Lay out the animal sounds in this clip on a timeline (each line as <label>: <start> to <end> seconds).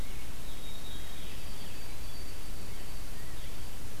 White-throated Sparrow (Zonotrichia albicollis): 0.3 to 4.0 seconds